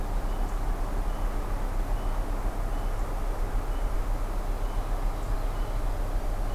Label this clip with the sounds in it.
Ovenbird